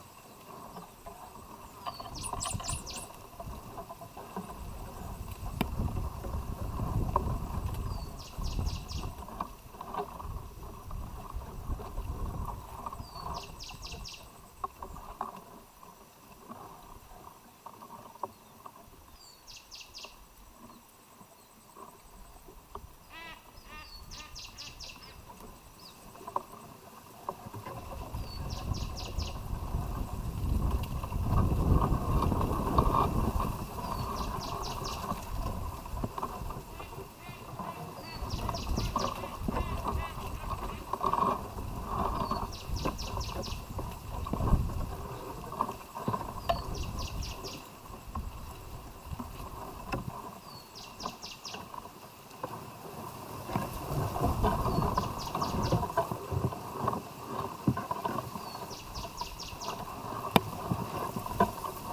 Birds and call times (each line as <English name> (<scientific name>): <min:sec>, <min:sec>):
Cinnamon Bracken-Warbler (Bradypterus cinnamomeus): 0:02.2, 0:13.4, 0:24.2, 0:42.7, 0:51.1
Silvery-cheeked Hornbill (Bycanistes brevis): 0:23.0, 0:39.3